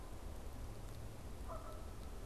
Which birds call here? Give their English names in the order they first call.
Canada Goose